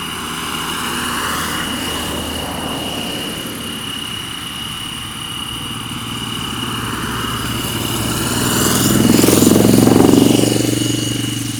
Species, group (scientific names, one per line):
Oecanthus pellucens
Orthoptera